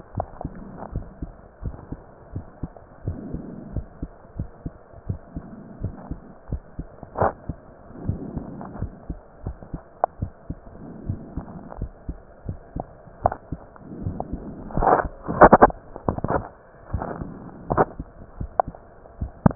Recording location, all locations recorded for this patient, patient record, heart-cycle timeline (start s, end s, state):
mitral valve (MV)
pulmonary valve (PV)+tricuspid valve (TV)+mitral valve (MV)
#Age: Child
#Sex: Male
#Height: 145.0 cm
#Weight: 34.1 kg
#Pregnancy status: False
#Murmur: Absent
#Murmur locations: nan
#Most audible location: nan
#Systolic murmur timing: nan
#Systolic murmur shape: nan
#Systolic murmur grading: nan
#Systolic murmur pitch: nan
#Systolic murmur quality: nan
#Diastolic murmur timing: nan
#Diastolic murmur shape: nan
#Diastolic murmur grading: nan
#Diastolic murmur pitch: nan
#Diastolic murmur quality: nan
#Outcome: Normal
#Campaign: 2015 screening campaign
0.00	0.14	unannotated
0.14	0.28	S1
0.28	0.40	systole
0.40	0.52	S2
0.52	0.90	diastole
0.90	1.06	S1
1.06	1.18	systole
1.18	1.30	S2
1.30	1.62	diastole
1.62	1.78	S1
1.78	1.88	systole
1.88	2.00	S2
2.00	2.32	diastole
2.32	2.44	S1
2.44	2.58	systole
2.58	2.72	S2
2.72	3.04	diastole
3.04	3.17	S1
3.17	3.29	systole
3.29	3.39	S2
3.39	3.72	diastole
3.72	3.83	S1
3.83	3.98	systole
3.98	4.13	S2
4.13	4.36	diastole
4.36	4.50	S1
4.50	4.62	systole
4.62	4.74	S2
4.74	5.08	diastole
5.08	5.20	S1
5.20	5.34	systole
5.34	5.44	S2
5.44	5.80	diastole
5.80	5.94	S1
5.94	6.04	systole
6.04	6.16	S2
6.16	6.48	diastole
6.48	6.62	S1
6.62	6.74	systole
6.74	6.84	S2
6.84	7.18	diastole
7.18	7.34	S1
7.34	7.46	systole
7.46	7.58	S2
7.58	8.02	diastole
8.02	8.20	S1
8.20	8.32	systole
8.32	8.44	S2
8.44	8.76	diastole
8.76	8.92	S1
8.92	9.07	systole
9.07	9.17	S2
9.17	9.44	diastole
9.44	9.58	S1
9.58	9.70	systole
9.70	9.80	S2
9.80	10.18	diastole
10.18	10.32	S1
10.32	10.46	systole
10.46	10.58	S2
10.58	11.04	diastole
11.04	11.22	S1
11.22	11.34	systole
11.34	11.44	S2
11.44	11.78	diastole
11.78	11.92	S1
11.92	12.06	systole
12.06	12.16	S2
12.16	12.46	diastole
12.46	12.60	S1
12.60	12.72	systole
12.72	12.86	S2
12.86	13.22	diastole
13.22	13.36	S1
13.36	13.48	systole
13.48	13.60	S2
13.60	14.00	diastole
14.00	14.18	S1
14.18	14.28	systole
14.28	14.42	S2
14.42	14.74	diastole
14.74	14.88	S1
14.88	19.55	unannotated